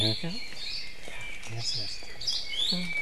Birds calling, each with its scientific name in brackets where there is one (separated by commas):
Red-billed Leiothrix (Leiothrix lutea), Hawaii Akepa (Loxops coccineus), Iiwi (Drepanis coccinea), Apapane (Himatione sanguinea), Hawaii Creeper (Loxops mana)